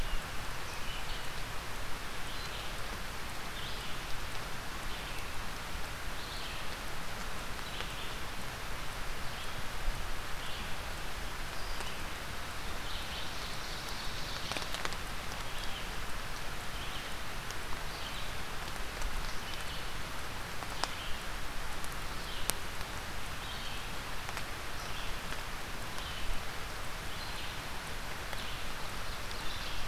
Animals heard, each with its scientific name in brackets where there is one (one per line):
Scarlet Tanager (Piranga olivacea)
Red-eyed Vireo (Vireo olivaceus)
Ovenbird (Seiurus aurocapilla)